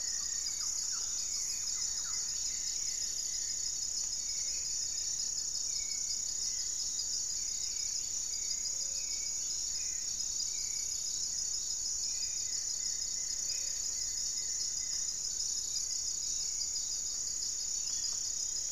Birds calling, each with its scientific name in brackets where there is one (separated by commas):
Goeldi's Antbird (Akletos goeldii), Black-faced Antthrush (Formicarius analis), Hauxwell's Thrush (Turdus hauxwelli), Dusky-throated Antshrike (Thamnomanes ardesiacus), Dusky-capped Greenlet (Pachysylvia hypoxantha), Gray-fronted Dove (Leptotila rufaxilla), Rufous-fronted Antthrush (Formicarius rufifrons), Thrush-like Wren (Campylorhynchus turdinus)